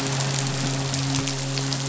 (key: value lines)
label: biophony, midshipman
recorder: SoundTrap 500